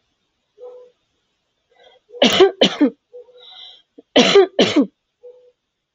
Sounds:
Cough